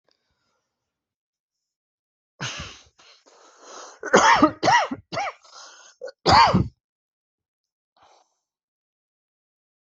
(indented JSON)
{
  "expert_labels": [
    {
      "quality": "ok",
      "cough_type": "dry",
      "dyspnea": false,
      "wheezing": false,
      "stridor": false,
      "choking": false,
      "congestion": false,
      "nothing": true,
      "diagnosis": "COVID-19",
      "severity": "mild"
    },
    {
      "quality": "good",
      "cough_type": "dry",
      "dyspnea": false,
      "wheezing": true,
      "stridor": false,
      "choking": false,
      "congestion": false,
      "nothing": false,
      "diagnosis": "obstructive lung disease",
      "severity": "mild"
    },
    {
      "quality": "good",
      "cough_type": "dry",
      "dyspnea": false,
      "wheezing": false,
      "stridor": false,
      "choking": false,
      "congestion": false,
      "nothing": true,
      "diagnosis": "upper respiratory tract infection",
      "severity": "mild"
    },
    {
      "quality": "good",
      "cough_type": "dry",
      "dyspnea": false,
      "wheezing": false,
      "stridor": false,
      "choking": false,
      "congestion": false,
      "nothing": true,
      "diagnosis": "healthy cough",
      "severity": "pseudocough/healthy cough"
    }
  ],
  "age": 58,
  "gender": "male",
  "respiratory_condition": false,
  "fever_muscle_pain": false,
  "status": "COVID-19"
}